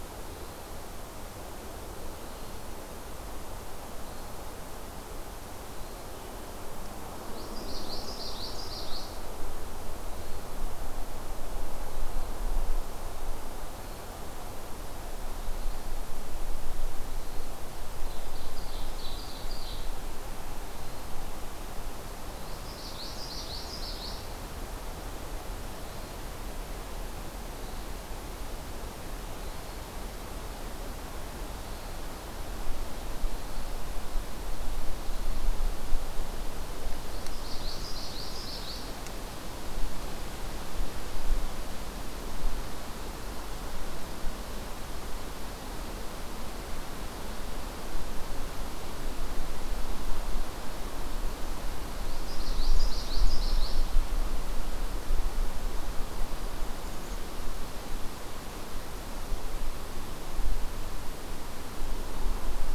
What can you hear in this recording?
Common Yellowthroat, Ovenbird, Black-capped Chickadee